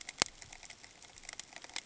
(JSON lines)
{"label": "ambient", "recorder": "HydroMoth"}